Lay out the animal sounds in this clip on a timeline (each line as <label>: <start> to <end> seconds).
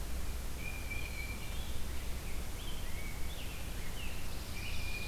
Tufted Titmouse (Baeolophus bicolor): 0.5 to 1.6 seconds
Scarlet Tanager (Piranga olivacea): 1.5 to 4.9 seconds